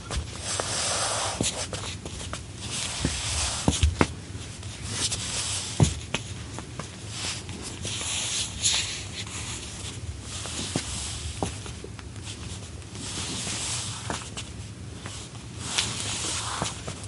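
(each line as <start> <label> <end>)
0.1 A woman adjusting her socks. 17.1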